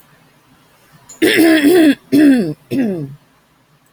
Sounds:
Throat clearing